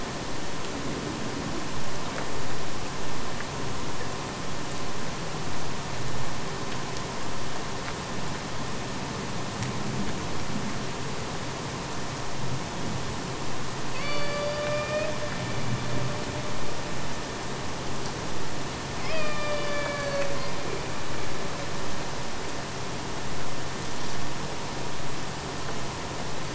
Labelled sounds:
13.9	15.1	killer whale, Bigg's (transient), AT1 transient, 0.37 to 5.6 kHz
19.0	20.4	killer whale, Bigg's (transient), AT1 transient, 0.40 to 5.5 kHz

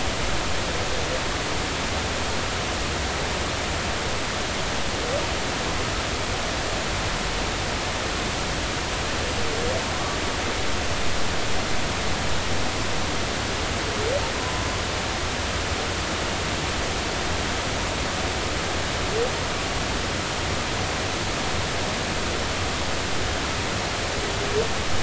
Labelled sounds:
14.3	14.7	humpback whale, 0.96 to 1.1 kHz

